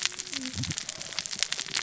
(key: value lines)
label: biophony, cascading saw
recorder: SoundTrap 600 or HydroMoth